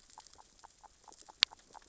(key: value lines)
label: biophony, grazing
recorder: SoundTrap 600 or HydroMoth